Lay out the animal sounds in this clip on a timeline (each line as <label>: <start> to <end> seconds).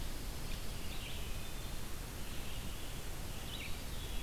Red-eyed Vireo (Vireo olivaceus): 0.0 to 4.2 seconds
Wood Thrush (Hylocichla mustelina): 1.1 to 1.8 seconds
Eastern Wood-Pewee (Contopus virens): 3.5 to 4.2 seconds